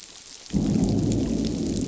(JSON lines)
{"label": "biophony, growl", "recorder": "SoundTrap 500"}